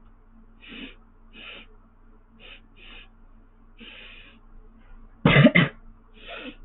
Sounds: Sniff